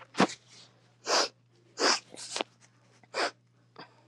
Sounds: Sniff